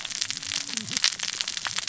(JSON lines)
{"label": "biophony, cascading saw", "recorder": "SoundTrap 600 or HydroMoth"}